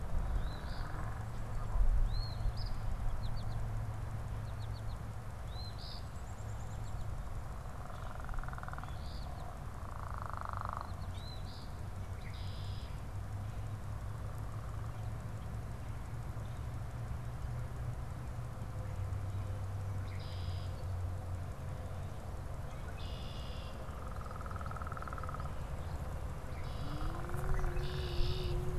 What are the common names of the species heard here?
Eastern Phoebe, American Goldfinch, Red-winged Blackbird